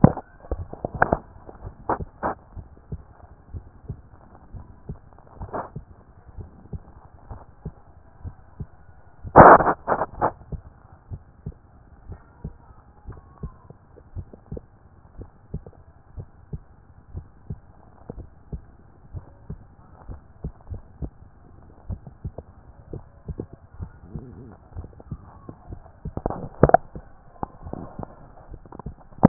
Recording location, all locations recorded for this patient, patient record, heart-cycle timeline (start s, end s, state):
tricuspid valve (TV)
aortic valve (AV)+pulmonary valve (PV)+tricuspid valve (TV)+mitral valve (MV)
#Age: Adolescent
#Sex: Male
#Height: 155.0 cm
#Weight: 47.1 kg
#Pregnancy status: False
#Murmur: Absent
#Murmur locations: nan
#Most audible location: nan
#Systolic murmur timing: nan
#Systolic murmur shape: nan
#Systolic murmur grading: nan
#Systolic murmur pitch: nan
#Systolic murmur quality: nan
#Diastolic murmur timing: nan
#Diastolic murmur shape: nan
#Diastolic murmur grading: nan
#Diastolic murmur pitch: nan
#Diastolic murmur quality: nan
#Outcome: Abnormal
#Campaign: 2014 screening campaign
0.00	10.81	unannotated
10.81	11.10	diastole
11.10	11.22	S1
11.22	11.44	systole
11.44	11.54	S2
11.54	12.08	diastole
12.08	12.20	S1
12.20	12.44	systole
12.44	12.54	S2
12.54	13.08	diastole
13.08	13.20	S1
13.20	13.42	systole
13.42	13.52	S2
13.52	14.16	diastole
14.16	14.28	S1
14.28	14.50	systole
14.50	14.62	S2
14.62	15.18	diastole
15.18	15.30	S1
15.30	15.52	systole
15.52	15.64	S2
15.64	16.16	diastole
16.16	16.28	S1
16.28	16.52	systole
16.52	16.62	S2
16.62	17.14	diastole
17.14	17.26	S1
17.26	17.48	systole
17.48	17.60	S2
17.60	18.16	diastole
18.16	18.28	S1
18.28	18.52	systole
18.52	18.62	S2
18.62	19.14	diastole
19.14	19.24	S1
19.24	19.48	systole
19.48	19.58	S2
19.58	19.94	diastole
19.94	29.28	unannotated